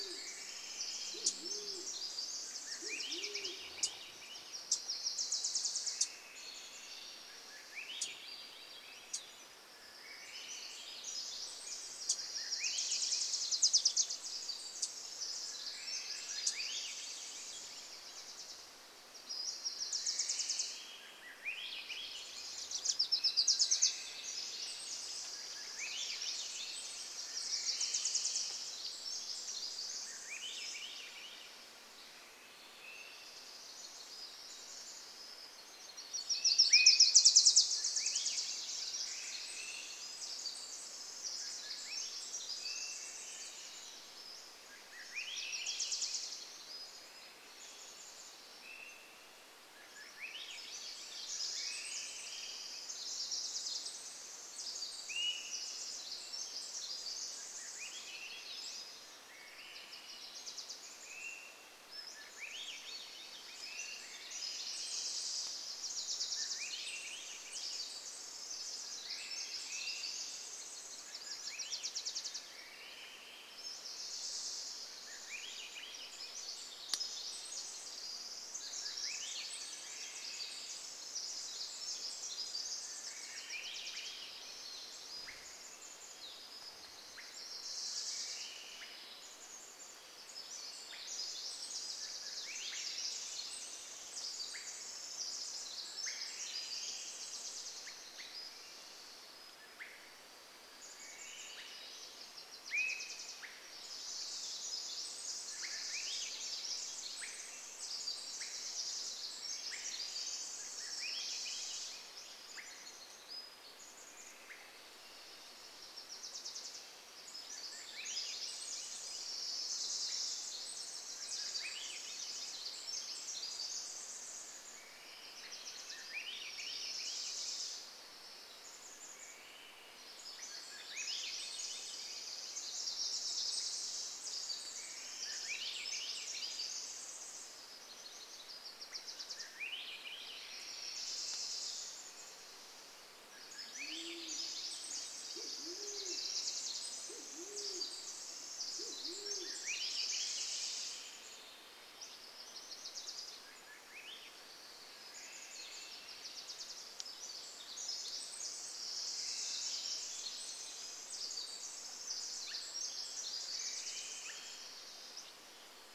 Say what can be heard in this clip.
Band-tailed Pigeon song, Pacific Wren song, Swainson's Thrush song, Wilson's Warbler call, Wilson's Warbler song, unidentified sound, Pacific-slope Flycatcher call, Swainson's Thrush call, Chestnut-backed Chickadee call, Band-tailed Pigeon call